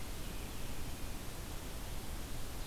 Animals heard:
forest ambience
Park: Marsh-Billings-Rockefeller National Historical Park